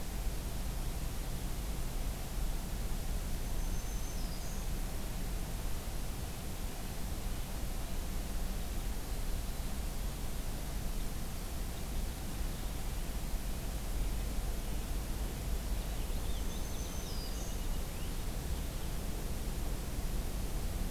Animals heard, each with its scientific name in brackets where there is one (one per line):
Purple Finch (Haemorhous purpureus)
Black-throated Green Warbler (Setophaga virens)